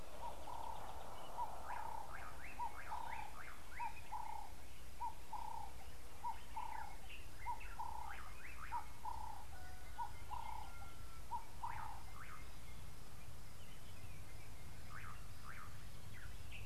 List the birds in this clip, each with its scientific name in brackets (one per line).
Slate-colored Boubou (Laniarius funebris)
Ring-necked Dove (Streptopelia capicola)